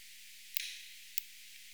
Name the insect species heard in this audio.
Tylopsis lilifolia